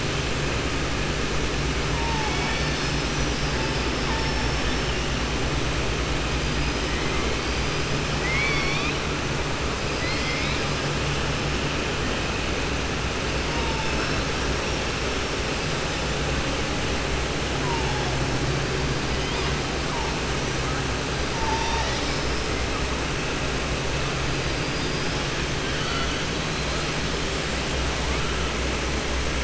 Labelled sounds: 8.1	9.0	killer whale, southern resident, 1.1 to 5.7 kHz
9.9	10.8	killer whale, southern resident, 2.0 to 5.5 kHz
24.7	25.2	killer whale, southern resident, 4.8 to 5.7 kHz

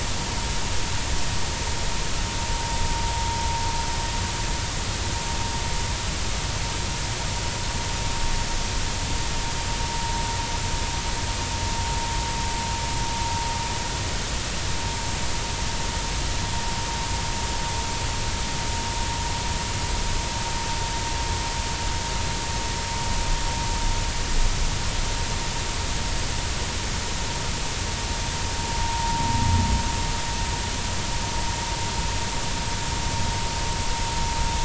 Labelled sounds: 28.8	29.2	vessel noise, 0.86 to 1.1 kHz

